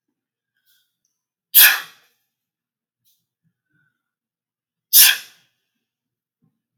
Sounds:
Sneeze